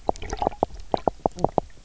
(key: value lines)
label: biophony, knock croak
recorder: SoundTrap 300